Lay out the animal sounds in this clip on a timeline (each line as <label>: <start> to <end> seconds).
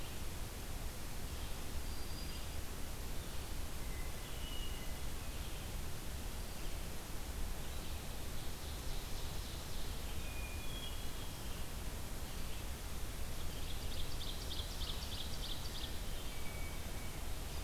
Red-eyed Vireo (Vireo olivaceus): 0.0 to 6.9 seconds
Black-throated Green Warbler (Setophaga virens): 1.3 to 2.6 seconds
Hermit Thrush (Catharus guttatus): 3.7 to 5.2 seconds
Ovenbird (Seiurus aurocapilla): 8.3 to 10.2 seconds
Hermit Thrush (Catharus guttatus): 10.0 to 11.7 seconds
Ovenbird (Seiurus aurocapilla): 13.3 to 16.2 seconds
Hermit Thrush (Catharus guttatus): 15.6 to 17.6 seconds